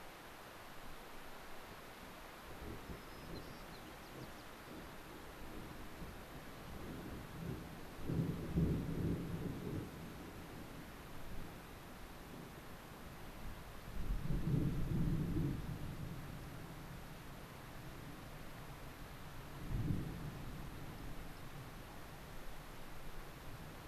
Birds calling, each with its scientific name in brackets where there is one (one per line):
White-crowned Sparrow (Zonotrichia leucophrys)